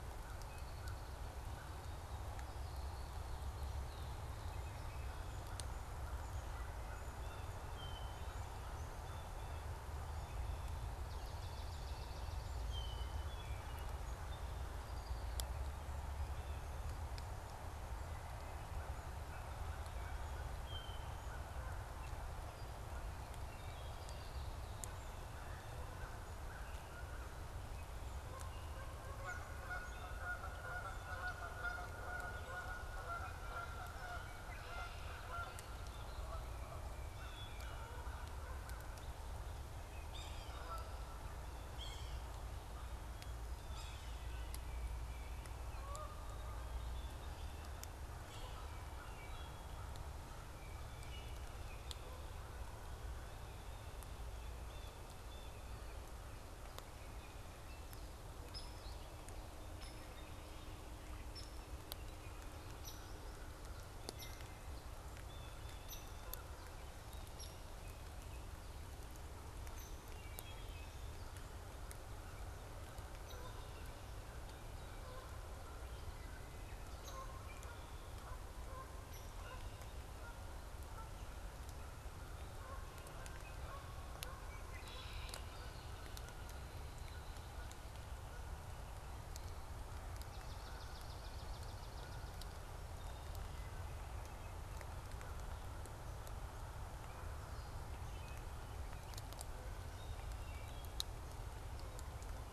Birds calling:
Red-winged Blackbird (Agelaius phoeniceus)
Hairy Woodpecker (Dryobates villosus)
Swamp Sparrow (Melospiza georgiana)
Canada Goose (Branta canadensis)
American Crow (Corvus brachyrhynchos)
Yellow-bellied Sapsucker (Sphyrapicus varius)
Blue Jay (Cyanocitta cristata)
Hermit Thrush (Catharus guttatus)
Wood Thrush (Hylocichla mustelina)
Common Grackle (Quiscalus quiscula)

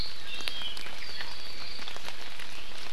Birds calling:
Apapane (Himatione sanguinea)

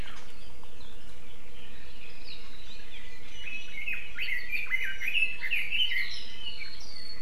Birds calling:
Hawaii Amakihi (Chlorodrepanis virens)
Red-billed Leiothrix (Leiothrix lutea)

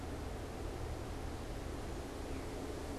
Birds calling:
Veery (Catharus fuscescens)

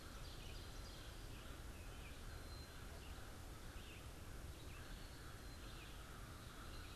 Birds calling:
American Crow (Corvus brachyrhynchos)
Red-eyed Vireo (Vireo olivaceus)

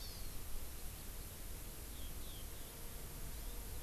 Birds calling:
Eurasian Skylark (Alauda arvensis)
Hawaii Amakihi (Chlorodrepanis virens)

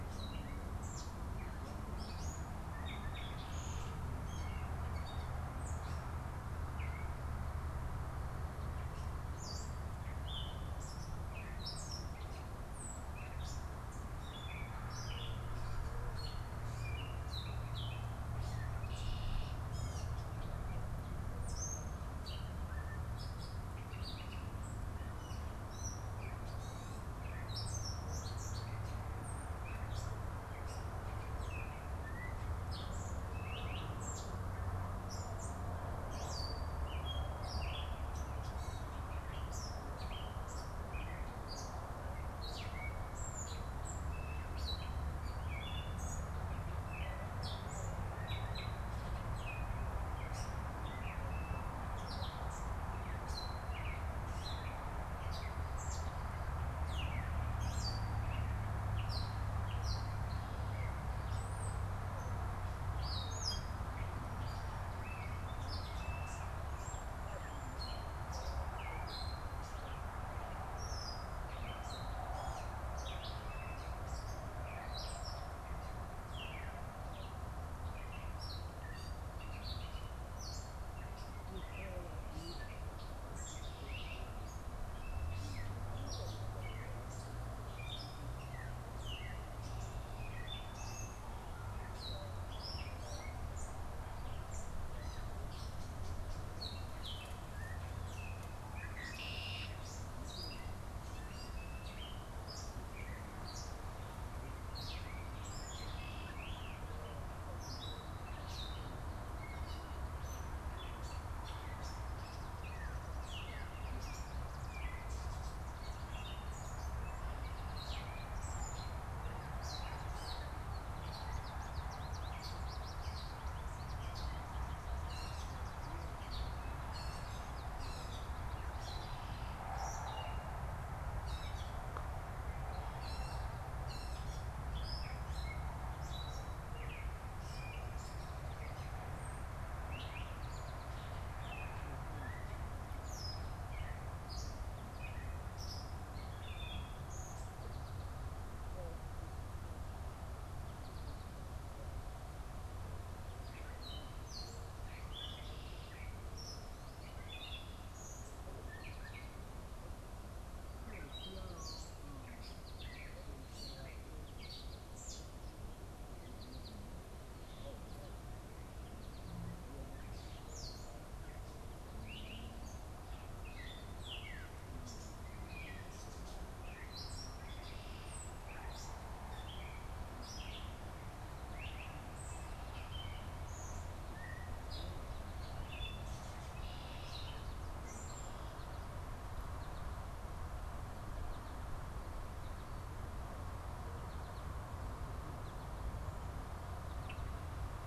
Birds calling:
American Goldfinch (Spinus tristis)
Gray Catbird (Dumetella carolinensis)
Red-winged Blackbird (Agelaius phoeniceus)

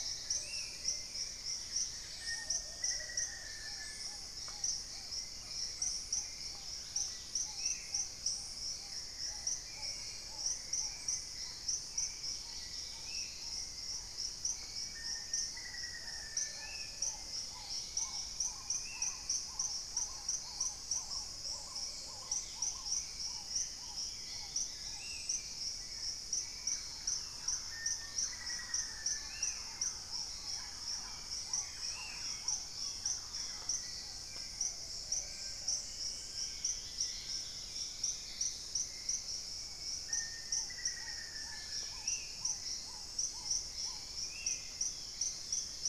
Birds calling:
Hauxwell's Thrush (Turdus hauxwelli)
Black-faced Antthrush (Formicarius analis)
Dusky-throated Antshrike (Thamnomanes ardesiacus)
unidentified bird
Long-billed Woodcreeper (Nasica longirostris)
Plumbeous Pigeon (Patagioenas plumbea)
Spot-winged Antshrike (Pygiptila stellaris)
Dusky-capped Greenlet (Pachysylvia hypoxantha)
Paradise Tanager (Tangara chilensis)
Long-winged Antwren (Myrmotherula longipennis)
Thrush-like Wren (Campylorhynchus turdinus)
Black-tailed Trogon (Trogon melanurus)

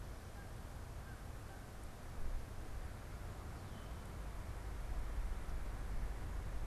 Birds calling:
Canada Goose (Branta canadensis)

